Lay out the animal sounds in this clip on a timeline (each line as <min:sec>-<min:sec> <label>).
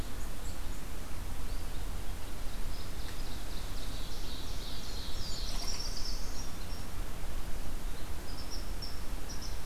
0:02.5-0:05.6 Ovenbird (Seiurus aurocapilla)
0:04.4-0:06.2 Blackburnian Warbler (Setophaga fusca)
0:04.5-0:06.3 Black-throated Blue Warbler (Setophaga caerulescens)
0:07.9-0:09.7 unknown mammal